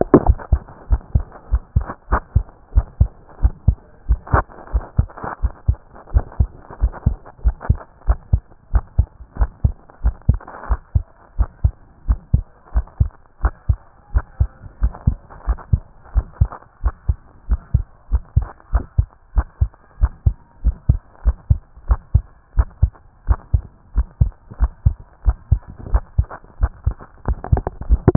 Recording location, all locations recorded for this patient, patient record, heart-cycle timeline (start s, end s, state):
pulmonary valve (PV)
aortic valve (AV)+pulmonary valve (PV)+tricuspid valve (TV)+mitral valve (MV)
#Age: Child
#Sex: Female
#Height: 131.0 cm
#Weight: 34.8 kg
#Pregnancy status: False
#Murmur: Absent
#Murmur locations: nan
#Most audible location: nan
#Systolic murmur timing: nan
#Systolic murmur shape: nan
#Systolic murmur grading: nan
#Systolic murmur pitch: nan
#Systolic murmur quality: nan
#Diastolic murmur timing: nan
#Diastolic murmur shape: nan
#Diastolic murmur grading: nan
#Diastolic murmur pitch: nan
#Diastolic murmur quality: nan
#Outcome: Normal
#Campaign: 2014 screening campaign
0.00	0.26	unannotated
0.26	0.38	S1
0.38	0.52	systole
0.52	0.62	S2
0.62	0.90	diastole
0.90	1.00	S1
1.00	1.14	systole
1.14	1.24	S2
1.24	1.50	diastole
1.50	1.62	S1
1.62	1.76	systole
1.76	1.86	S2
1.86	2.10	diastole
2.10	2.22	S1
2.22	2.34	systole
2.34	2.44	S2
2.44	2.74	diastole
2.74	2.86	S1
2.86	3.00	systole
3.00	3.10	S2
3.10	3.42	diastole
3.42	3.54	S1
3.54	3.66	systole
3.66	3.76	S2
3.76	4.08	diastole
4.08	4.20	S1
4.20	4.32	systole
4.32	4.44	S2
4.44	4.72	diastole
4.72	4.84	S1
4.84	4.98	systole
4.98	5.08	S2
5.08	5.42	diastole
5.42	5.52	S1
5.52	5.68	systole
5.68	5.78	S2
5.78	6.12	diastole
6.12	6.24	S1
6.24	6.38	systole
6.38	6.48	S2
6.48	6.80	diastole
6.80	6.92	S1
6.92	7.06	systole
7.06	7.16	S2
7.16	7.44	diastole
7.44	7.56	S1
7.56	7.68	systole
7.68	7.78	S2
7.78	8.06	diastole
8.06	8.18	S1
8.18	8.32	systole
8.32	8.42	S2
8.42	8.72	diastole
8.72	8.84	S1
8.84	8.98	systole
8.98	9.06	S2
9.06	9.38	diastole
9.38	9.50	S1
9.50	9.64	systole
9.64	9.74	S2
9.74	10.04	diastole
10.04	10.14	S1
10.14	10.28	systole
10.28	10.38	S2
10.38	10.68	diastole
10.68	10.80	S1
10.80	10.94	systole
10.94	11.04	S2
11.04	11.38	diastole
11.38	11.48	S1
11.48	11.64	systole
11.64	11.72	S2
11.72	12.08	diastole
12.08	12.18	S1
12.18	12.32	systole
12.32	12.44	S2
12.44	12.74	diastole
12.74	12.86	S1
12.86	13.00	systole
13.00	13.10	S2
13.10	13.42	diastole
13.42	13.54	S1
13.54	13.68	systole
13.68	13.78	S2
13.78	14.14	diastole
14.14	14.24	S1
14.24	14.40	systole
14.40	14.48	S2
14.48	14.82	diastole
14.82	14.92	S1
14.92	15.06	systole
15.06	15.16	S2
15.16	15.46	diastole
15.46	15.58	S1
15.58	15.72	systole
15.72	15.82	S2
15.82	16.14	diastole
16.14	16.26	S1
16.26	16.40	systole
16.40	16.50	S2
16.50	16.84	diastole
16.84	16.94	S1
16.94	17.08	systole
17.08	17.16	S2
17.16	17.48	diastole
17.48	17.60	S1
17.60	17.74	systole
17.74	17.84	S2
17.84	18.12	diastole
18.12	18.22	S1
18.22	18.36	systole
18.36	18.46	S2
18.46	18.72	diastole
18.72	18.84	S1
18.84	18.98	systole
18.98	19.08	S2
19.08	19.36	diastole
19.36	19.46	S1
19.46	19.60	systole
19.60	19.70	S2
19.70	20.00	diastole
20.00	20.12	S1
20.12	20.26	systole
20.26	20.34	S2
20.34	20.64	diastole
20.64	20.76	S1
20.76	20.88	systole
20.88	21.00	S2
21.00	21.24	diastole
21.24	21.36	S1
21.36	21.50	systole
21.50	21.60	S2
21.60	21.88	diastole
21.88	22.00	S1
22.00	22.14	systole
22.14	22.24	S2
22.24	22.56	diastole
22.56	22.68	S1
22.68	22.82	systole
22.82	22.92	S2
22.92	23.28	diastole
23.28	23.38	S1
23.38	23.52	systole
23.52	23.62	S2
23.62	23.96	diastole
23.96	24.06	S1
24.06	24.20	systole
24.20	24.32	S2
24.32	24.60	diastole
24.60	24.72	S1
24.72	24.84	systole
24.84	24.96	S2
24.96	25.26	diastole
25.26	25.36	S1
25.36	25.50	systole
25.50	25.60	S2
25.60	25.92	diastole
25.92	26.02	S1
26.02	26.18	systole
26.18	26.26	S2
26.26	26.60	diastole
26.60	26.72	S1
26.72	26.86	systole
26.86	26.96	S2
26.96	27.26	diastole
27.26	27.38	S1
27.38	27.52	systole
27.52	27.62	S2
27.62	27.88	diastole
27.88	28.16	unannotated